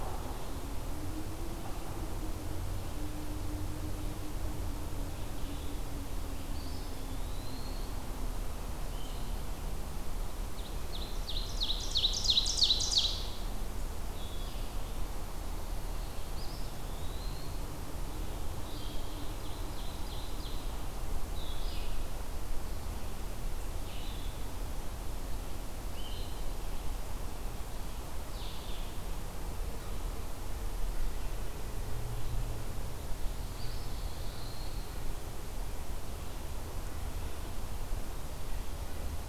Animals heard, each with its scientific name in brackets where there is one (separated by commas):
Pine Warbler (Setophaga pinus), Ovenbird (Seiurus aurocapilla), Blue-headed Vireo (Vireo solitarius), Eastern Wood-Pewee (Contopus virens)